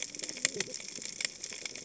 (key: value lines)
label: biophony, cascading saw
recorder: HydroMoth